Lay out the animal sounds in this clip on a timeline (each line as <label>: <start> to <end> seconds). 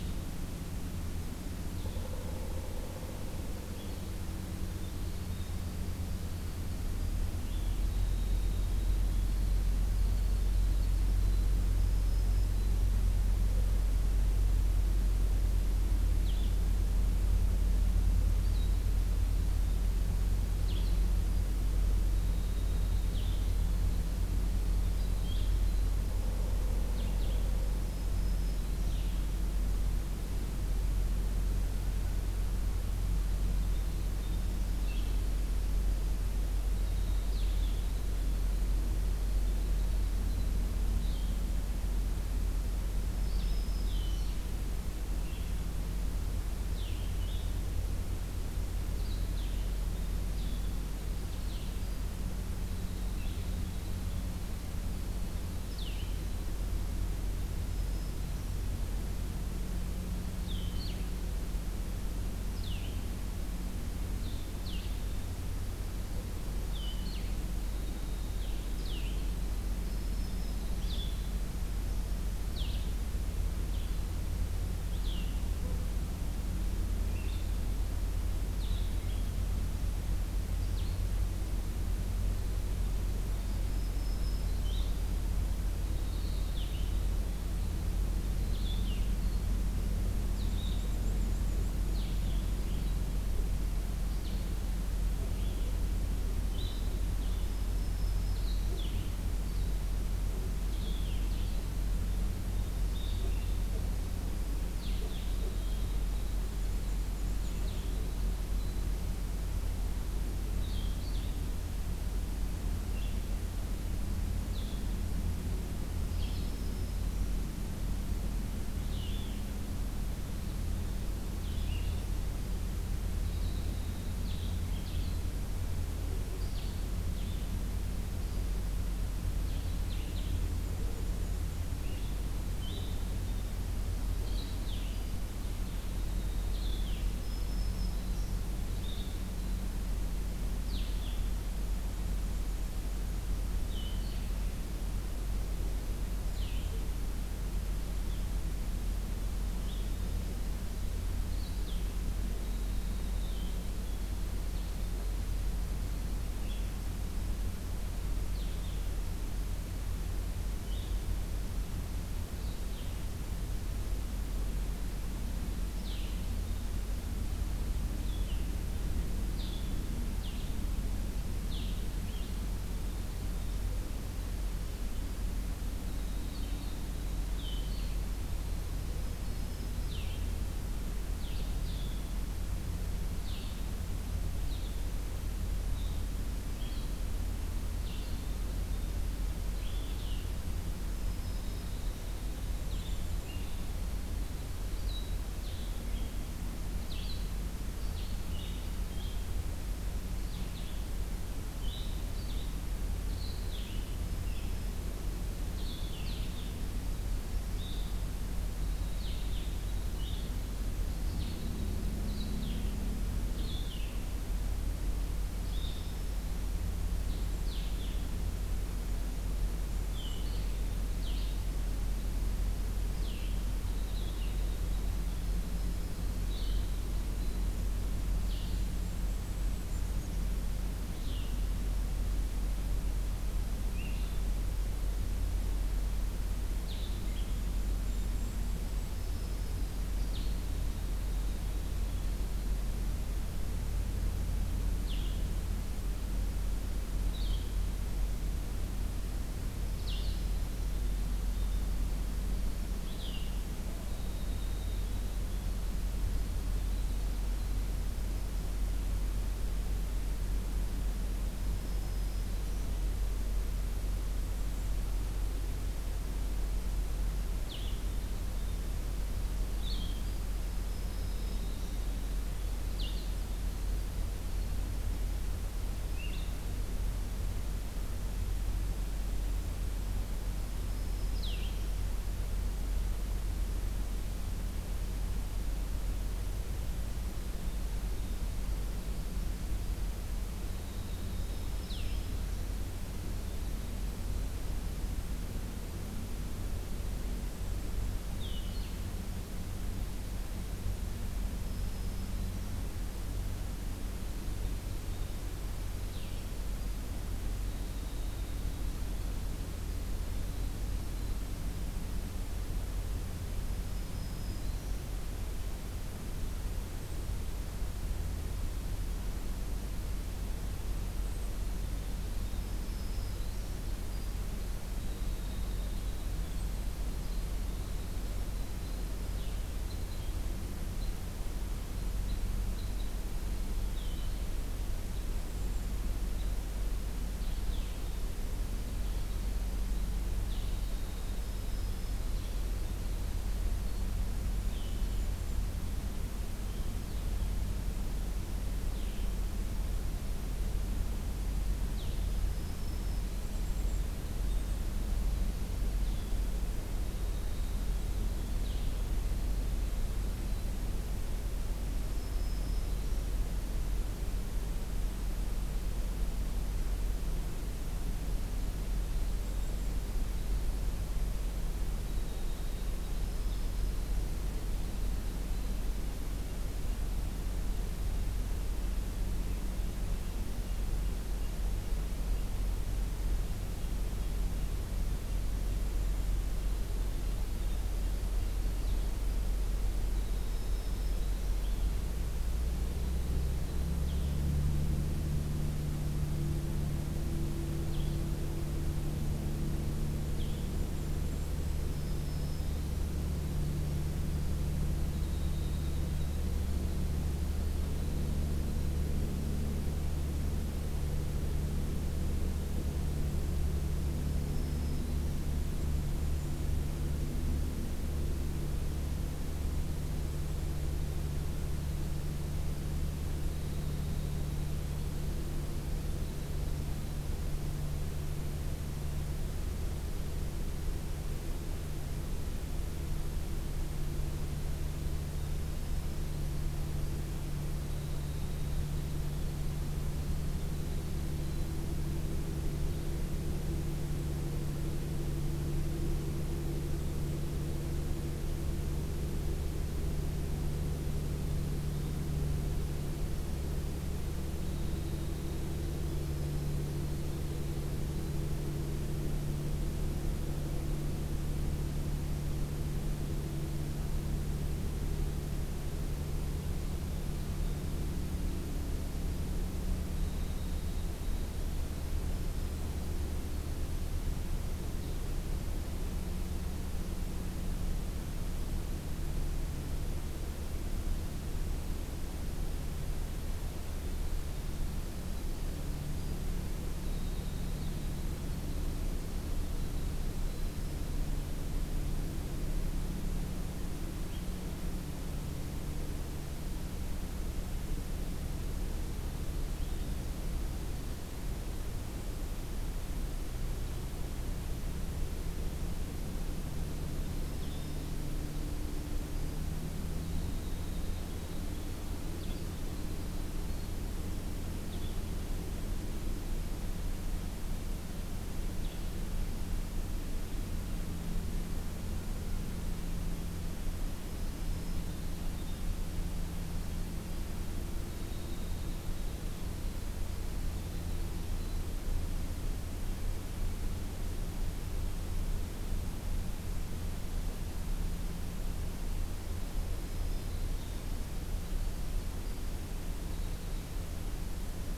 Blue-headed Vireo (Vireo solitarius): 0.0 to 51.8 seconds
Pileated Woodpecker (Dryocopus pileatus): 1.8 to 3.1 seconds
Winter Wren (Troglodytes hiemalis): 3.6 to 11.7 seconds
Black-throated Green Warbler (Setophaga virens): 11.6 to 13.0 seconds
Winter Wren (Troglodytes hiemalis): 21.2 to 26.1 seconds
Black-throated Green Warbler (Setophaga virens): 27.6 to 29.1 seconds
Winter Wren (Troglodytes hiemalis): 33.3 to 40.9 seconds
Black-throated Green Warbler (Setophaga virens): 43.0 to 44.4 seconds
Winter Wren (Troglodytes hiemalis): 51.1 to 56.8 seconds
Black-throated Green Warbler (Setophaga virens): 57.6 to 58.7 seconds
Blue-headed Vireo (Vireo solitarius): 60.3 to 111.4 seconds
Winter Wren (Troglodytes hiemalis): 67.2 to 69.8 seconds
Black-throated Green Warbler (Setophaga virens): 69.8 to 71.0 seconds
Black-throated Green Warbler (Setophaga virens): 83.6 to 84.9 seconds
Black-and-white Warbler (Mniotilta varia): 90.3 to 91.8 seconds
Black-throated Green Warbler (Setophaga virens): 97.3 to 98.9 seconds
Winter Wren (Troglodytes hiemalis): 104.6 to 109.1 seconds
Black-and-white Warbler (Mniotilta varia): 106.5 to 108.2 seconds
Blue-headed Vireo (Vireo solitarius): 112.9 to 169.7 seconds
Black-throated Green Warbler (Setophaga virens): 115.9 to 117.4 seconds
Winter Wren (Troglodytes hiemalis): 122.9 to 125.0 seconds
Black-and-white Warbler (Mniotilta varia): 130.0 to 131.8 seconds
Winter Wren (Troglodytes hiemalis): 134.7 to 136.9 seconds
Black-throated Green Warbler (Setophaga virens): 136.8 to 138.3 seconds
Black-and-white Warbler (Mniotilta varia): 141.7 to 143.1 seconds
Winter Wren (Troglodytes hiemalis): 152.2 to 156.7 seconds
Blue-headed Vireo (Vireo solitarius): 170.1 to 228.6 seconds
Winter Wren (Troglodytes hiemalis): 175.5 to 180.0 seconds
Winter Wren (Troglodytes hiemalis): 190.9 to 195.3 seconds
Black-throated Green Warbler (Setophaga virens): 191.0 to 192.1 seconds
Black-and-white Warbler (Mniotilta varia): 192.4 to 193.4 seconds
Black-throated Green Warbler (Setophaga virens): 203.7 to 205.0 seconds
Winter Wren (Troglodytes hiemalis): 206.8 to 212.0 seconds
Black-throated Green Warbler (Setophaga virens): 215.3 to 216.6 seconds
Golden-crowned Kinglet (Regulus satrapa): 218.4 to 220.3 seconds
Winter Wren (Troglodytes hiemalis): 223.2 to 227.7 seconds
Golden-crowned Kinglet (Regulus satrapa): 227.6 to 230.2 seconds
Blue-headed Vireo (Vireo solitarius): 230.9 to 281.7 seconds
Golden-crowned Kinglet (Regulus satrapa): 237.0 to 239.0 seconds
Black-throated Green Warbler (Setophaga virens): 238.7 to 240.0 seconds
Winter Wren (Troglodytes hiemalis): 240.3 to 242.4 seconds
Winter Wren (Troglodytes hiemalis): 249.9 to 257.5 seconds
Black-throated Green Warbler (Setophaga virens): 261.1 to 263.0 seconds
Black-throated Green Warbler (Setophaga virens): 269.9 to 271.8 seconds
Black-throated Green Warbler (Setophaga virens): 280.3 to 281.9 seconds
Winter Wren (Troglodytes hiemalis): 287.1 to 294.6 seconds
Black-throated Green Warbler (Setophaga virens): 291.0 to 292.5 seconds
Blue-headed Vireo (Vireo solitarius): 291.6 to 306.2 seconds
Black-throated Green Warbler (Setophaga virens): 301.4 to 302.7 seconds
Winter Wren (Troglodytes hiemalis): 306.9 to 311.2 seconds
Black-throated Green Warbler (Setophaga virens): 313.6 to 314.8 seconds
Black-throated Green Warbler (Setophaga virens): 322.3 to 323.6 seconds
Winter Wren (Troglodytes hiemalis): 323.5 to 331.2 seconds
Blue-headed Vireo (Vireo solitarius): 329.0 to 345.0 seconds
Red Crossbill (Loxia curvirostra): 329.6 to 336.3 seconds
Winter Wren (Troglodytes hiemalis): 339.3 to 345.3 seconds
Black-throated Green Warbler (Setophaga virens): 340.9 to 342.5 seconds
Golden-crowned Kinglet (Regulus satrapa): 344.1 to 345.5 seconds
Blue-headed Vireo (Vireo solitarius): 346.7 to 358.9 seconds
Black-throated Green Warbler (Setophaga virens): 352.1 to 353.6 seconds
Golden-crowned Kinglet (Regulus satrapa): 353.1 to 354.6 seconds
Winter Wren (Troglodytes hiemalis): 353.9 to 360.6 seconds
Black-throated Green Warbler (Setophaga virens): 361.8 to 363.1 seconds
Winter Wren (Troglodytes hiemalis): 368.6 to 373.1 seconds
Black-throated Green Warbler (Setophaga virens): 373.0 to 374.1 seconds
Blue-headed Vireo (Vireo solitarius): 388.4 to 388.9 seconds
Winter Wren (Troglodytes hiemalis): 389.7 to 392.0 seconds
Black-throated Green Warbler (Setophaga virens): 390.1 to 391.4 seconds
Blue-headed Vireo (Vireo solitarius): 393.7 to 400.9 seconds
Golden-crowned Kinglet (Regulus satrapa): 400.0 to 401.7 seconds
Black-throated Green Warbler (Setophaga virens): 401.5 to 402.9 seconds
Winter Wren (Troglodytes hiemalis): 403.9 to 409.7 seconds
Black-throated Green Warbler (Setophaga virens): 414.1 to 415.3 seconds
Winter Wren (Troglodytes hiemalis): 422.8 to 427.1 seconds
Winter Wren (Troglodytes hiemalis): 437.7 to 442.0 seconds
Winter Wren (Troglodytes hiemalis): 454.3 to 458.3 seconds
Winter Wren (Troglodytes hiemalis): 469.6 to 475.3 seconds
Winter Wren (Troglodytes hiemalis): 486.1 to 491.2 seconds
Blue-headed Vireo (Vireo solitarius): 493.9 to 518.8 seconds
Winter Wren (Troglodytes hiemalis): 509.8 to 515.0 seconds
Black-throated Green Warbler (Setophaga virens): 523.9 to 525.2 seconds
Winter Wren (Troglodytes hiemalis): 527.7 to 531.9 seconds
Black-throated Green Warbler (Setophaga virens): 539.4 to 540.7 seconds
Winter Wren (Troglodytes hiemalis): 539.9 to 544.0 seconds